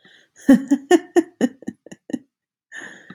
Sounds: Laughter